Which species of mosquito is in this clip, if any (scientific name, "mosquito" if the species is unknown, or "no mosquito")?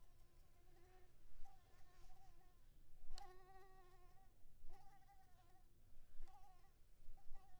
Anopheles maculipalpis